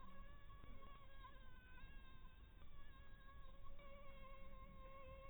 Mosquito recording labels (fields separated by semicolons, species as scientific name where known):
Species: Anopheles maculatus; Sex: female; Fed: blood-fed; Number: one; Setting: cup